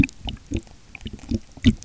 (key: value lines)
label: geophony, waves
recorder: SoundTrap 300